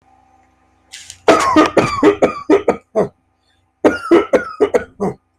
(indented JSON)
{
  "expert_labels": [
    {
      "quality": "good",
      "cough_type": "dry",
      "dyspnea": false,
      "wheezing": false,
      "stridor": true,
      "choking": false,
      "congestion": false,
      "nothing": false,
      "diagnosis": "obstructive lung disease",
      "severity": "mild"
    }
  ],
  "age": 35,
  "gender": "male",
  "respiratory_condition": false,
  "fever_muscle_pain": false,
  "status": "healthy"
}